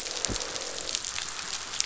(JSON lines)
{"label": "biophony, croak", "recorder": "SoundTrap 500"}